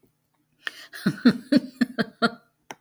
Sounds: Laughter